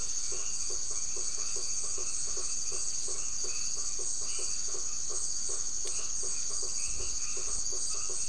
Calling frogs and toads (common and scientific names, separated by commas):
white-edged tree frog (Boana albomarginata), blacksmith tree frog (Boana faber)